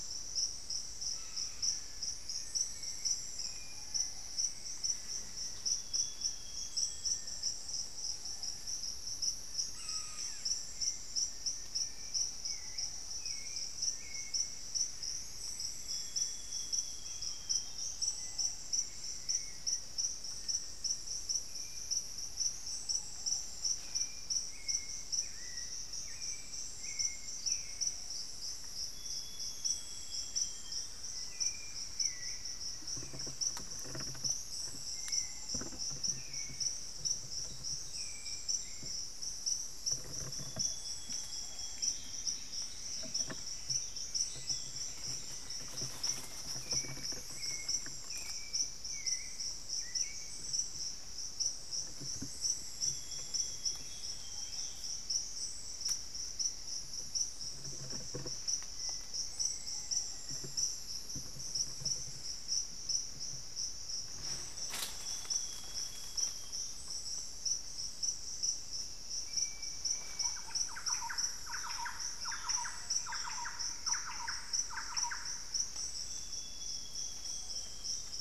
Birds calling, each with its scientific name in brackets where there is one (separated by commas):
Plumbeous Antbird (Myrmelastes hyperythrus), Thrush-like Wren (Campylorhynchus turdinus), Ringed Woodpecker (Celeus torquatus), Hauxwell's Thrush (Turdus hauxwelli), Black-faced Antthrush (Formicarius analis), Little Tinamou (Crypturellus soui), unidentified bird, Ruddy Pigeon (Patagioenas subvinacea), Cinnamon-throated Woodcreeper (Dendrexetastes rufigula), Amazonian Grosbeak (Cyanoloxia rothschildii), Buff-breasted Wren (Cantorchilus leucotis), Black Caracara (Daptrius ater)